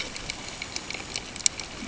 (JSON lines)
{"label": "ambient", "recorder": "HydroMoth"}